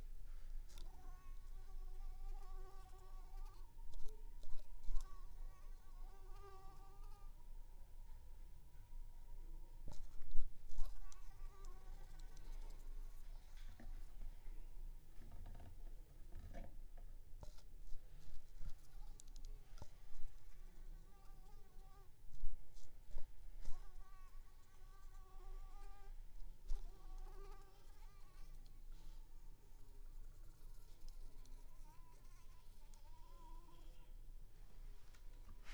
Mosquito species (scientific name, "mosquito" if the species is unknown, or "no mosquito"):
Anopheles arabiensis